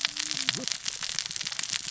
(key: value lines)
label: biophony, cascading saw
recorder: SoundTrap 600 or HydroMoth